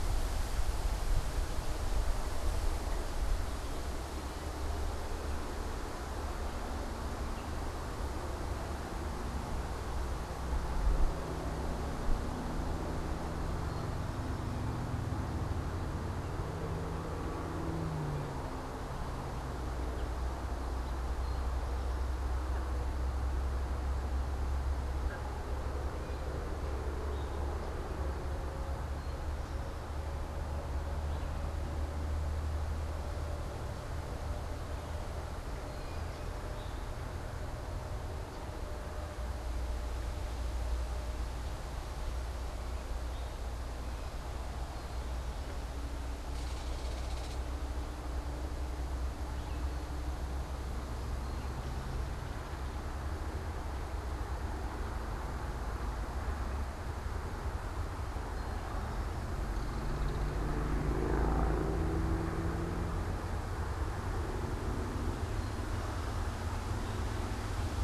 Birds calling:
unidentified bird, Belted Kingfisher (Megaceryle alcyon), Eastern Towhee (Pipilo erythrophthalmus), Gray Catbird (Dumetella carolinensis)

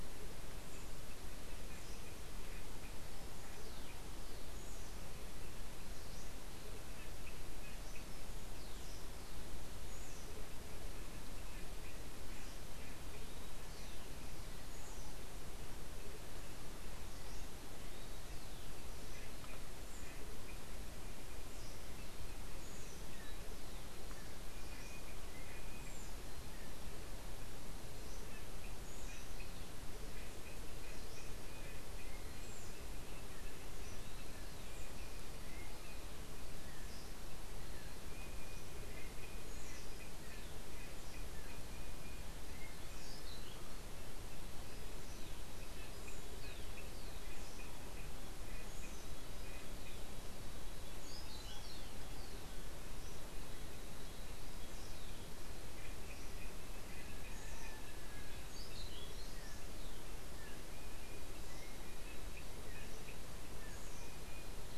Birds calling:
Andean Motmot (Momotus aequatorialis), Orange-billed Nightingale-Thrush (Catharus aurantiirostris)

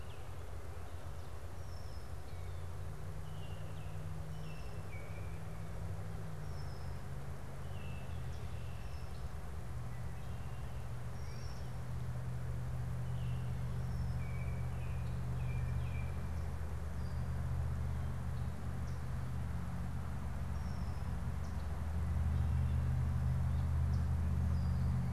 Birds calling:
Yellow Warbler (Setophaga petechia), Baltimore Oriole (Icterus galbula), Red-winged Blackbird (Agelaius phoeniceus)

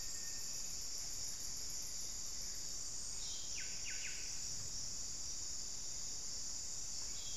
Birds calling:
unidentified bird, Black-faced Antthrush (Formicarius analis), Buff-breasted Wren (Cantorchilus leucotis)

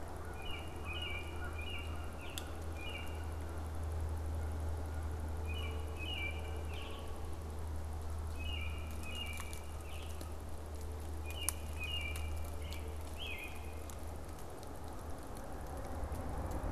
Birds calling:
American Robin (Turdus migratorius), Canada Goose (Branta canadensis)

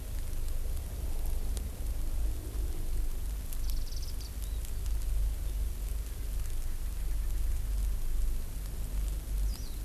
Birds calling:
Warbling White-eye (Zosterops japonicus)

